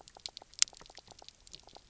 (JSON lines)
{"label": "biophony, knock croak", "recorder": "SoundTrap 300"}